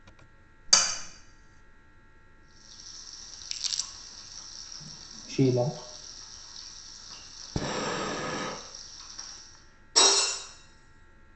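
First, you can hear cutlery. After that, there is quiet frying, which fades in and fades out. Over it, crumpling can be heard. Next, someone says "Sheila." Later, someone breathes. Afterwards, glass shatters.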